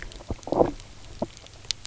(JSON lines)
{"label": "biophony, low growl", "recorder": "SoundTrap 300"}